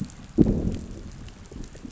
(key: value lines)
label: biophony, growl
recorder: SoundTrap 500